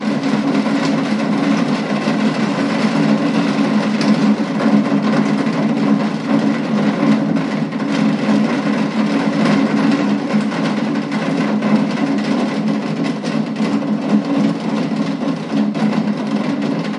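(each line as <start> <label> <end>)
0.0 Heavy raindrops fall on metallic plates with volume fluctuating between loud and medium. 17.0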